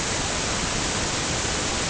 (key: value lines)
label: ambient
recorder: HydroMoth